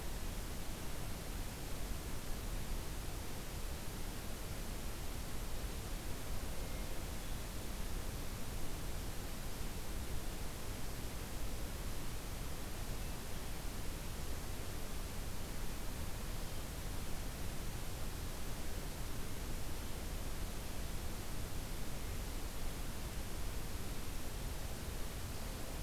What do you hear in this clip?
Hermit Thrush